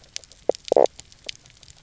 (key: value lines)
label: biophony, knock croak
recorder: SoundTrap 300